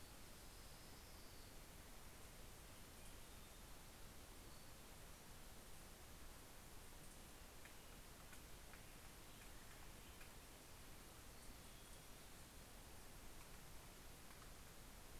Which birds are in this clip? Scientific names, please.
Leiothlypis celata